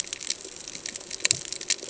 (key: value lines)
label: ambient
recorder: HydroMoth